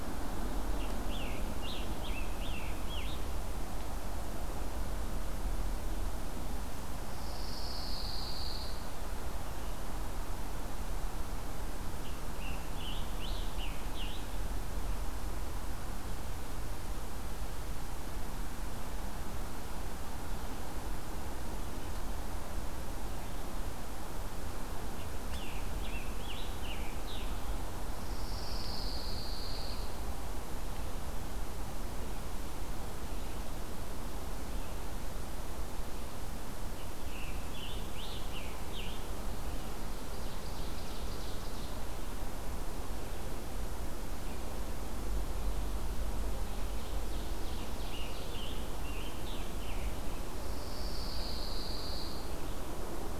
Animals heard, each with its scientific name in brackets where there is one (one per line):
Scarlet Tanager (Piranga olivacea)
Pine Warbler (Setophaga pinus)
Ovenbird (Seiurus aurocapilla)